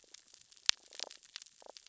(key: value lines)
label: biophony, damselfish
recorder: SoundTrap 600 or HydroMoth